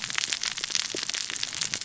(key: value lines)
label: biophony, cascading saw
recorder: SoundTrap 600 or HydroMoth